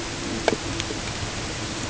{"label": "ambient", "recorder": "HydroMoth"}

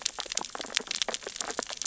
{"label": "biophony, sea urchins (Echinidae)", "recorder": "SoundTrap 600 or HydroMoth"}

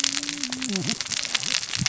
{"label": "biophony, cascading saw", "recorder": "SoundTrap 600 or HydroMoth"}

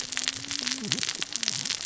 {"label": "biophony, cascading saw", "recorder": "SoundTrap 600 or HydroMoth"}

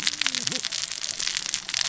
{"label": "biophony, cascading saw", "recorder": "SoundTrap 600 or HydroMoth"}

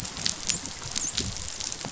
{"label": "biophony, dolphin", "recorder": "SoundTrap 500"}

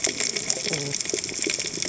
{"label": "biophony, cascading saw", "recorder": "HydroMoth"}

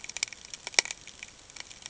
{"label": "ambient", "recorder": "HydroMoth"}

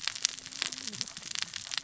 {"label": "biophony, cascading saw", "recorder": "SoundTrap 600 or HydroMoth"}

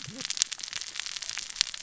{"label": "biophony, cascading saw", "recorder": "SoundTrap 600 or HydroMoth"}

